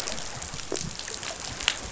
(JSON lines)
{"label": "biophony", "recorder": "SoundTrap 500"}